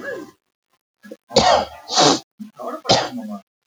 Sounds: Cough